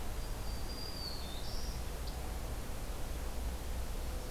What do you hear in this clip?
Black-throated Green Warbler